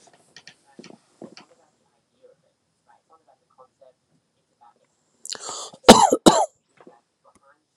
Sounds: Cough